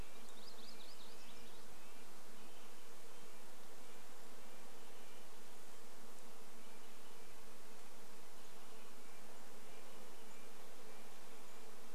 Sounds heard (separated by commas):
unidentified bird chip note, Red-breasted Nuthatch song, insect buzz, MacGillivray's Warbler song